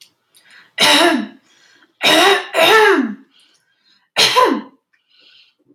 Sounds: Throat clearing